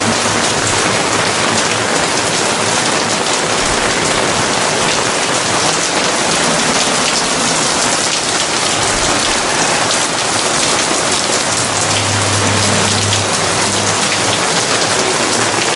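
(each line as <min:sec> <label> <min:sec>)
0:00.0 Quiet thunder rumbles in the background. 0:02.4
0:00.0 Rain pours down very loudly. 0:15.8
0:05.4 Quiet thunder rumbles in the background. 0:08.8
0:11.5 A car is driving past quietly in the background. 0:13.5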